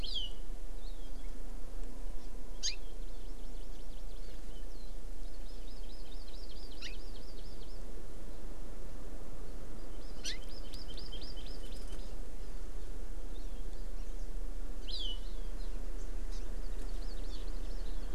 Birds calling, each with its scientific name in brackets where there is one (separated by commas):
Hawaii Amakihi (Chlorodrepanis virens)